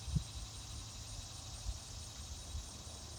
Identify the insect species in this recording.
Neotibicen tibicen